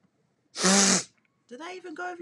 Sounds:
Sniff